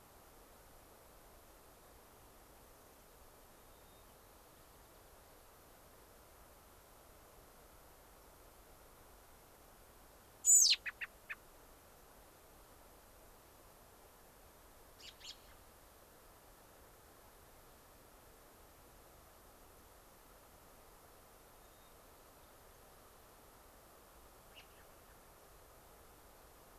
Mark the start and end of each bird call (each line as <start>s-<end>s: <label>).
3.5s-5.2s: White-crowned Sparrow (Zonotrichia leucophrys)
10.4s-11.4s: American Robin (Turdus migratorius)
14.9s-15.6s: American Robin (Turdus migratorius)
21.5s-22.0s: White-crowned Sparrow (Zonotrichia leucophrys)
24.5s-25.2s: American Robin (Turdus migratorius)